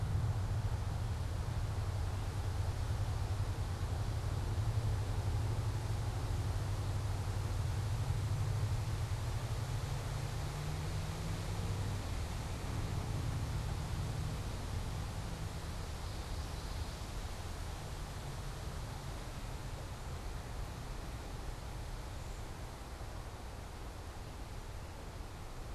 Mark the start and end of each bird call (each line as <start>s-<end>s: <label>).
15.7s-17.1s: Common Yellowthroat (Geothlypis trichas)